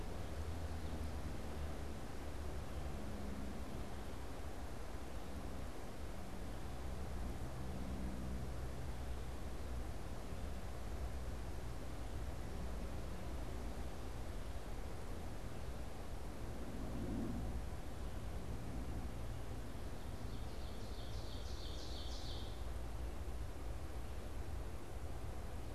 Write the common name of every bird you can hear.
Ovenbird